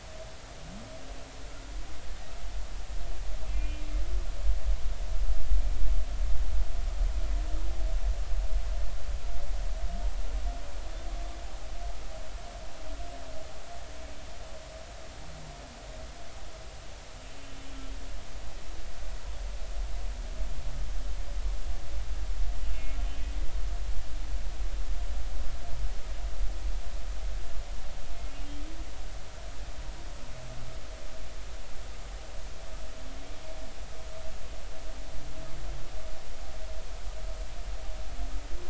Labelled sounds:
3.5	3.8	humpback whale, 2.3 to 2.8 kHz
17.4	17.7	humpback whale, 2.9 to 3.1 kHz
22.7	23.0	humpback whale, 2.1 to 2.2 kHz
28.3	28.6	humpback whale, 2.7 to 2.9 kHz

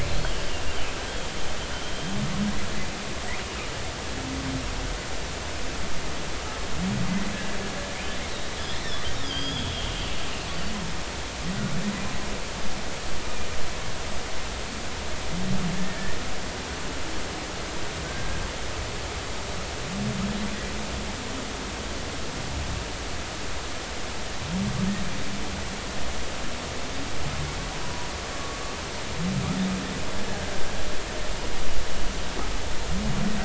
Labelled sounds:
8.6	8.8	killer whale, 3.3 to 3.6 kHz
9.2	10.7	killer whale, 3.0 to 5.0 kHz
15.7	16.2	killer whale, 1.6 to 1.9 kHz

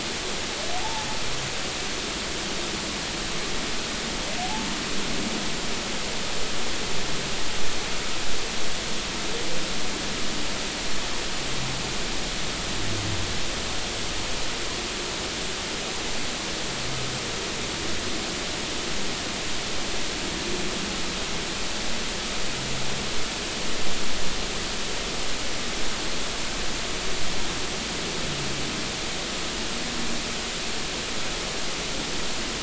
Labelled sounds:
0.8	1.1	humpback whale, 0.80 to 0.96 kHz
4.4	4.7	humpback whale, 0.80 to 0.93 kHz

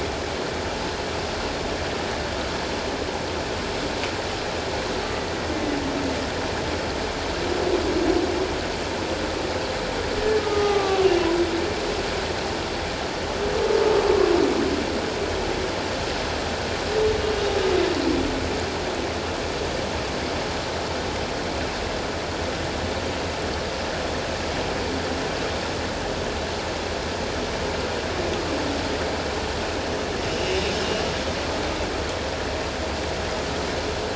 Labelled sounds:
5.5	5.8	humpback whale, 1.9 to 2.1 kHz
10.4	11.1	humpback whale, 0.78 to 1.3 kHz

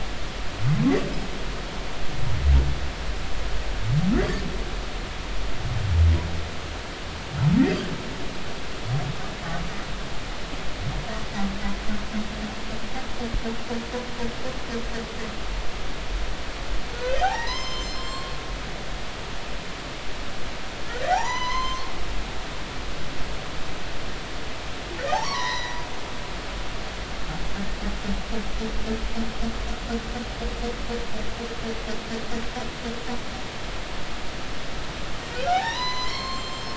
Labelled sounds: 16.9	18.3	humpback whale, 0.80 to 7.6 kHz
19.0	19.3	humpback whale, 3.1 to 3.3 kHz
21.1	21.9	humpback whale, 0.80 to 7.4 kHz
25.1	25.8	humpback whale, 0.80 to 5.9 kHz
35.5	36.7	humpback whale, 0.80 to 8.0 kHz

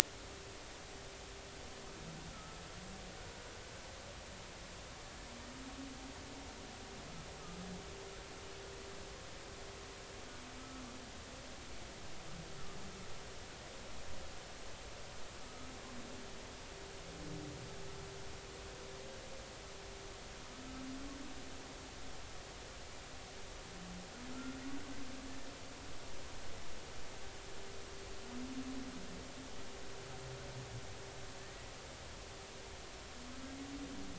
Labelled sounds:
2.3	2.6	humpback whale, 1.2 to 1.4 kHz
15.5	15.7	humpback whale, 1.2 to 1.3 kHz
24.3	24.6	humpback whale, 1.2 to 1.5 kHz

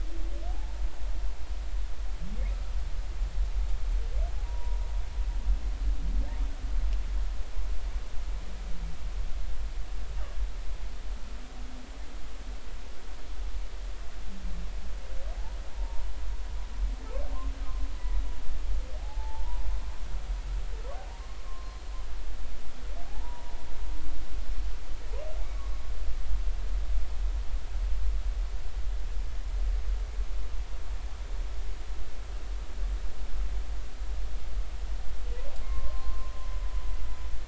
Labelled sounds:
0.5	0.8	humpback whale, 0.80 to 0.96 kHz
4.4	4.9	humpback whale, 0.90 to 1.0 kHz
15.7	16.1	humpback whale, 0.86 to 1.0 kHz
18.0	18.2	humpback whale, 0.86 to 1.0 kHz
19.0	19.6	humpback whale, 0.80 to 1.0 kHz
21.4	21.9	humpback whale, 1.0 to 4.3 kHz
23.1	23.5	humpback whale, 0.80 to 1.0 kHz
35.6	36.3	humpback whale, 0.99 to 1.1 kHz

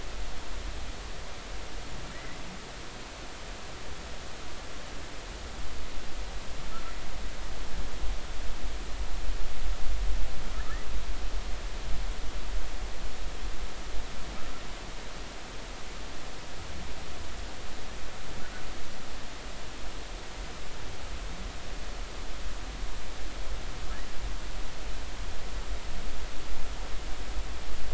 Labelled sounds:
2.1	2.4	humpback whale, 1.8 to 2.1 kHz

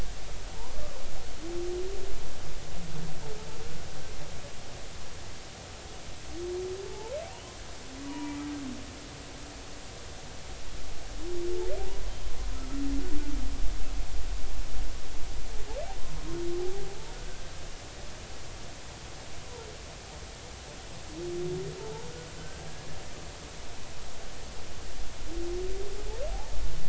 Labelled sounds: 6.9	7.1	humpback whale, 0.80 to 0.96 kHz
8.1	8.4	humpback whale, 0.90 to 2.5 kHz
17.1	17.4	humpback whale, 1.4 to 1.6 kHz
22.4	22.7	humpback whale, 1.5 to 1.6 kHz

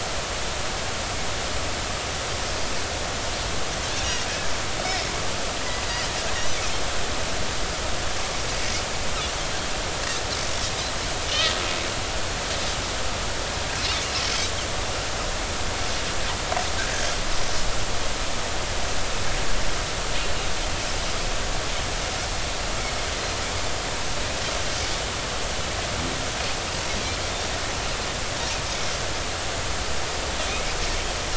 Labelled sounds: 4.0	4.3	Pacific white-sided dolphin, 2.8 to 3.0 kHz
11.3	11.6	Pacific white-sided dolphin, 2.7 to 3.3 kHz

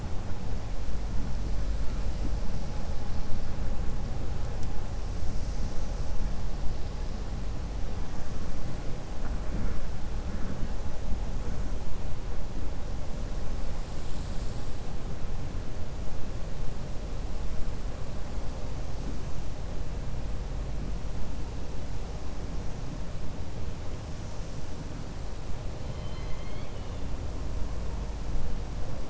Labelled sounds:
25.8	27.0	killer whale, 1.2 to 5.1 kHz

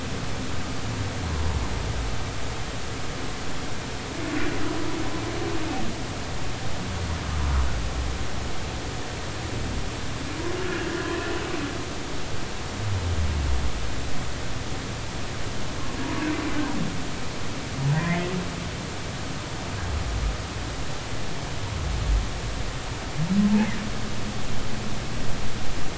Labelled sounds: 1.2	1.6	humpback whale, 0.83 to 1.1 kHz
17.9	18.3	humpback whale, 1.8 to 2.2 kHz

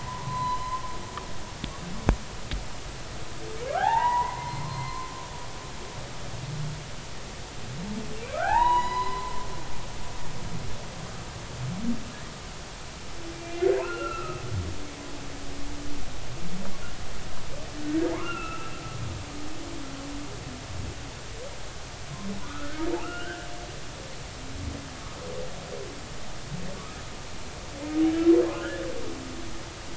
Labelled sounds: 0.2	0.8	humpback whale, 0.96 to 4.1 kHz
3.7	5.1	humpback whale, 0.80 to 2.1 kHz
8.2	9.3	humpback whale, 0.80 to 5.1 kHz
13.3	14.3	humpback whale, 2.3 to 2.8 kHz
14.8	15.4	humpback whale, 1.2 to 1.5 kHz
17.8	18.7	humpback whale, 0.80 to 2.8 kHz
22.4	23.4	humpback whale, 1.1 to 3.1 kHz
28.6	28.8	humpback whale, 1.3 to 1.8 kHz

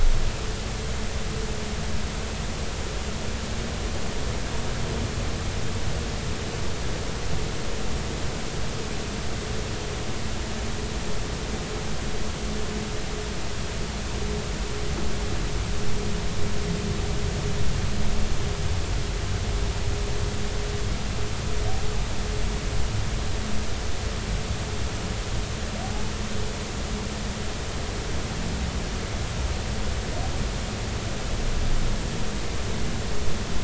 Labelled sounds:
25.8	26.1	humpback whale, 0.80 to 0.96 kHz

